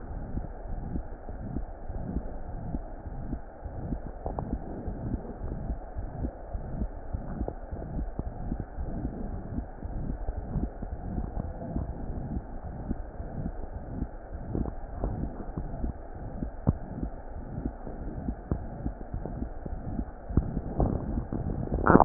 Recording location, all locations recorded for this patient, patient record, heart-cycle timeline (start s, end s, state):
aortic valve (AV)
aortic valve (AV)+pulmonary valve (PV)+tricuspid valve (TV)+mitral valve (MV)
#Age: Child
#Sex: Female
#Height: 112.0 cm
#Weight: 21.8 kg
#Pregnancy status: False
#Murmur: Present
#Murmur locations: aortic valve (AV)+mitral valve (MV)+pulmonary valve (PV)+tricuspid valve (TV)
#Most audible location: tricuspid valve (TV)
#Systolic murmur timing: Holosystolic
#Systolic murmur shape: Plateau
#Systolic murmur grading: III/VI or higher
#Systolic murmur pitch: High
#Systolic murmur quality: Harsh
#Diastolic murmur timing: nan
#Diastolic murmur shape: nan
#Diastolic murmur grading: nan
#Diastolic murmur pitch: nan
#Diastolic murmur quality: nan
#Outcome: Abnormal
#Campaign: 2015 screening campaign
0.00	2.82	unannotated
2.82	3.02	diastole
3.02	3.14	S1
3.14	3.30	systole
3.30	3.40	S2
3.40	3.64	diastole
3.64	3.76	S1
3.76	3.90	systole
3.90	4.00	S2
4.00	4.24	diastole
4.24	4.38	S1
4.38	4.50	systole
4.50	4.62	S2
4.62	4.86	diastole
4.86	4.96	S1
4.96	5.06	systole
5.06	5.22	S2
5.22	5.42	diastole
5.42	5.58	S1
5.58	5.68	systole
5.68	5.78	S2
5.78	5.98	diastole
5.98	6.08	S1
6.08	6.20	systole
6.20	6.32	S2
6.32	6.52	diastole
6.52	6.66	S1
6.66	6.78	systole
6.78	6.92	S2
6.92	7.12	diastole
7.12	7.26	S1
7.26	7.38	systole
7.38	7.50	S2
7.50	7.72	diastole
7.72	7.80	S1
7.80	7.90	systole
7.90	8.02	S2
8.02	8.20	diastole
8.20	8.34	S1
8.34	8.48	systole
8.48	8.60	S2
8.60	8.78	diastole
8.78	8.92	S1
8.92	9.00	systole
9.00	9.12	S2
9.12	9.30	diastole
9.30	9.42	S1
9.42	9.52	systole
9.52	9.66	S2
9.66	9.83	diastole
9.83	9.86	S1
9.86	22.05	unannotated